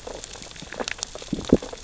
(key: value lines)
label: biophony, sea urchins (Echinidae)
recorder: SoundTrap 600 or HydroMoth